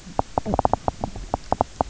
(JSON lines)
{"label": "biophony, knock croak", "recorder": "SoundTrap 300"}